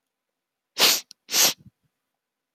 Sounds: Sniff